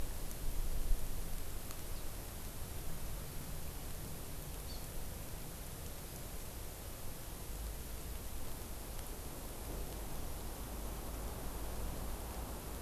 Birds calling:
Hawaii Amakihi (Chlorodrepanis virens)

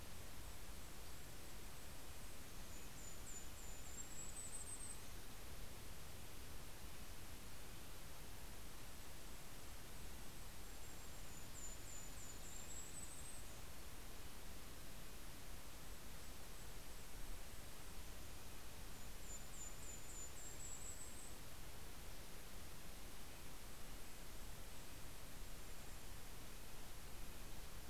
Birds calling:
Golden-crowned Kinglet (Regulus satrapa), Red-breasted Nuthatch (Sitta canadensis)

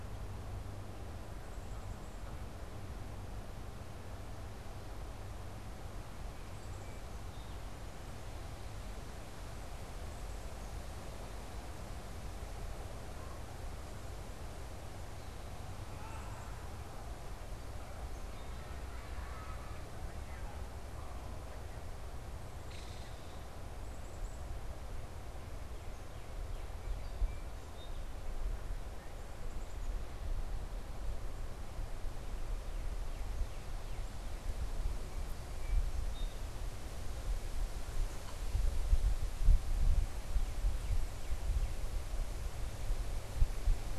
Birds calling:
Black-capped Chickadee (Poecile atricapillus), Song Sparrow (Melospiza melodia), Northern Cardinal (Cardinalis cardinalis), Belted Kingfisher (Megaceryle alcyon)

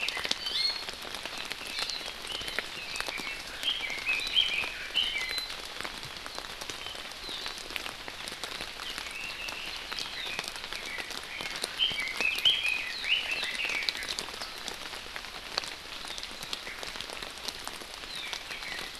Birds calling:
Red-billed Leiothrix (Leiothrix lutea)

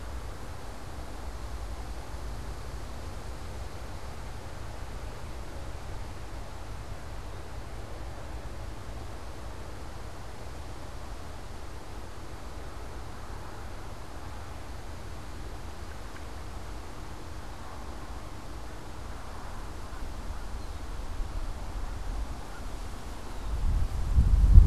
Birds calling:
unidentified bird

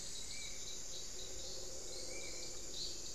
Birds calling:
Hauxwell's Thrush (Turdus hauxwelli), Spot-winged Antshrike (Pygiptila stellaris)

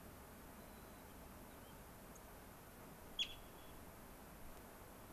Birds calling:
Dark-eyed Junco (Junco hyemalis), White-crowned Sparrow (Zonotrichia leucophrys)

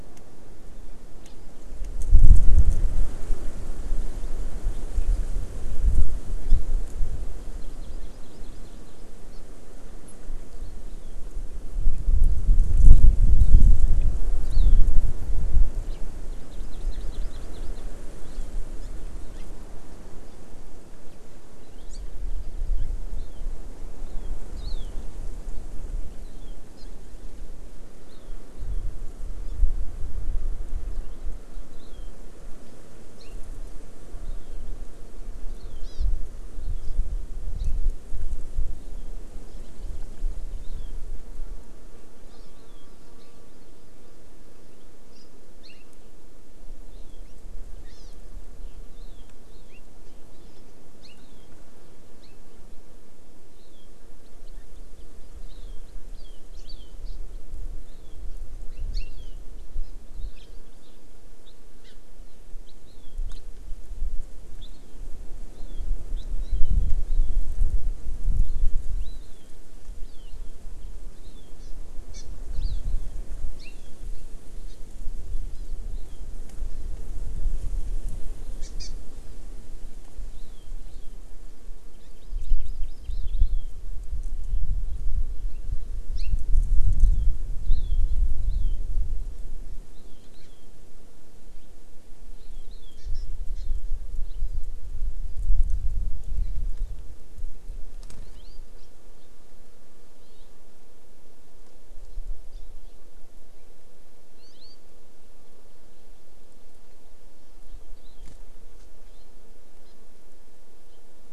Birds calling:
House Finch (Haemorhous mexicanus), Hawaii Amakihi (Chlorodrepanis virens)

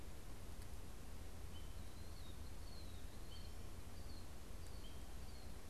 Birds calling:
Killdeer (Charadrius vociferus)

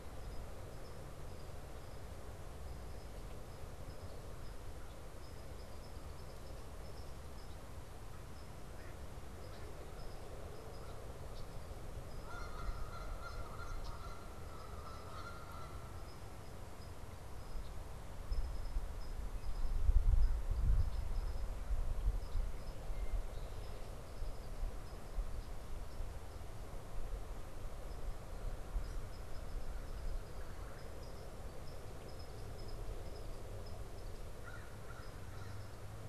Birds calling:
Canada Goose (Branta canadensis), American Crow (Corvus brachyrhynchos), Red-bellied Woodpecker (Melanerpes carolinus)

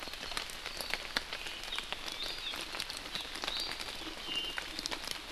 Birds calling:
Hawaii Amakihi (Chlorodrepanis virens), Iiwi (Drepanis coccinea)

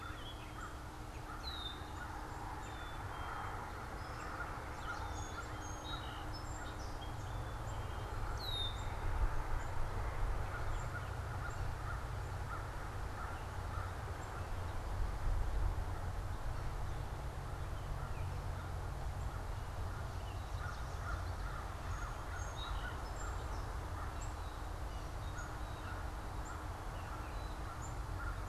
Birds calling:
Red-winged Blackbird (Agelaius phoeniceus), Song Sparrow (Melospiza melodia), Gray Catbird (Dumetella carolinensis), American Crow (Corvus brachyrhynchos), Yellow Warbler (Setophaga petechia), Black-capped Chickadee (Poecile atricapillus)

